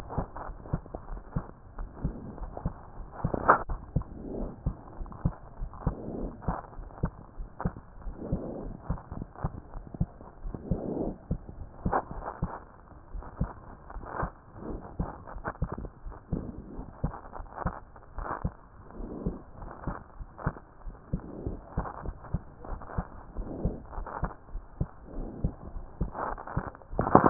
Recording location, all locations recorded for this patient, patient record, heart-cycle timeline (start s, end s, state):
pulmonary valve (PV)
aortic valve (AV)+pulmonary valve (PV)+tricuspid valve (TV)+mitral valve (MV)
#Age: Child
#Sex: Female
#Height: 119.0 cm
#Weight: 19.8 kg
#Pregnancy status: False
#Murmur: Absent
#Murmur locations: nan
#Most audible location: nan
#Systolic murmur timing: nan
#Systolic murmur shape: nan
#Systolic murmur grading: nan
#Systolic murmur pitch: nan
#Systolic murmur quality: nan
#Diastolic murmur timing: nan
#Diastolic murmur shape: nan
#Diastolic murmur grading: nan
#Diastolic murmur pitch: nan
#Diastolic murmur quality: nan
#Outcome: Normal
#Campaign: 2015 screening campaign
0.00	0.84	unannotated
0.84	1.08	diastole
1.08	1.22	S1
1.22	1.32	systole
1.32	1.48	S2
1.48	1.78	diastole
1.78	1.90	S1
1.90	2.02	systole
2.02	2.16	S2
2.16	2.38	diastole
2.38	2.52	S1
2.52	2.62	systole
2.62	2.76	S2
2.76	2.98	diastole
2.98	3.08	S1
3.08	3.22	systole
3.22	3.38	S2
3.38	3.66	diastole
3.66	3.82	S1
3.82	3.92	systole
3.92	4.08	S2
4.08	4.32	diastole
4.32	4.50	S1
4.50	4.62	systole
4.62	4.78	S2
4.78	5.00	diastole
5.00	5.12	S1
5.12	5.24	systole
5.24	5.36	S2
5.36	5.60	diastole
5.60	5.72	S1
5.72	5.82	systole
5.82	5.98	S2
5.98	6.18	diastole
6.18	6.34	S1
6.34	6.46	systole
6.46	6.56	S2
6.56	6.78	diastole
6.78	6.90	S1
6.90	7.00	systole
7.00	7.14	S2
7.14	7.38	diastole
7.38	7.48	S1
7.48	7.62	systole
7.62	7.74	S2
7.74	8.02	diastole
8.02	8.16	S1
8.16	8.30	systole
8.30	8.44	S2
8.44	8.64	diastole
8.64	8.76	S1
8.76	8.88	systole
8.88	8.98	S2
8.98	9.18	diastole
9.18	9.28	S1
9.28	9.40	systole
9.40	9.52	S2
9.52	9.74	diastole
9.74	9.84	S1
9.84	9.98	systole
9.98	10.12	S2
10.12	10.42	diastole
10.42	27.30	unannotated